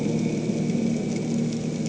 {"label": "anthrophony, boat engine", "recorder": "HydroMoth"}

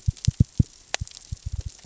{"label": "biophony, knock", "recorder": "SoundTrap 600 or HydroMoth"}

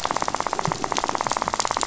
{"label": "biophony, rattle", "recorder": "SoundTrap 500"}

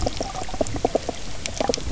{"label": "biophony, knock croak", "recorder": "SoundTrap 300"}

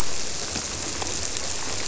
{"label": "biophony", "recorder": "SoundTrap 300"}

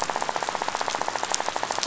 {"label": "biophony, rattle", "recorder": "SoundTrap 500"}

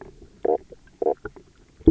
{"label": "biophony, knock croak", "recorder": "SoundTrap 300"}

